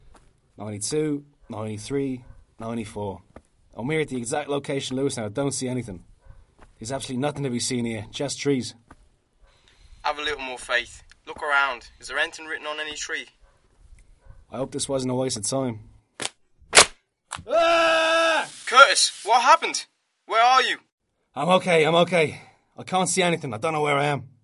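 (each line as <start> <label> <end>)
0.5 A man speaks. 9.0
10.0 A male voice speaking with a metallic distortion through a loudspeaker. 13.5
14.2 A man is speaking. 15.9
16.1 A loud clicking sound. 17.0
17.2 A man screams. 18.6
18.6 A male voice speaking with a metallic distortion through a loudspeaker. 20.9
21.3 A man screams. 24.3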